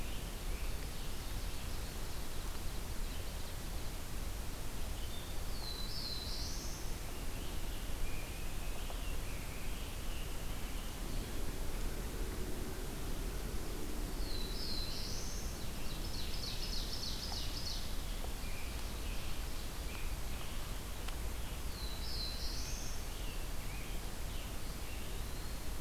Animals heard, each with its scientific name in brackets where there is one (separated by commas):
Eastern Wood-Pewee (Contopus virens), Scarlet Tanager (Piranga olivacea), Black-throated Blue Warbler (Setophaga caerulescens), American Robin (Turdus migratorius), Ovenbird (Seiurus aurocapilla)